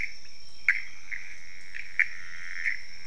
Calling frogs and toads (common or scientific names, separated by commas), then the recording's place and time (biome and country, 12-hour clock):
Pithecopus azureus
Cerrado, Brazil, 3:15am